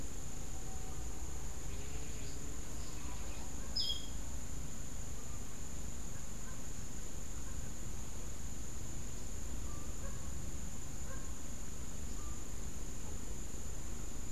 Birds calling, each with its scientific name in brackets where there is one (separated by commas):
Clay-colored Thrush (Turdus grayi)